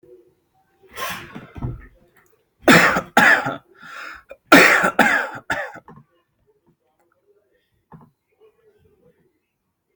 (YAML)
expert_labels:
- quality: ok
  cough_type: dry
  dyspnea: false
  wheezing: false
  stridor: false
  choking: false
  congestion: false
  nothing: true
  diagnosis: healthy cough
  severity: pseudocough/healthy cough
age: 26
gender: male
respiratory_condition: false
fever_muscle_pain: false
status: symptomatic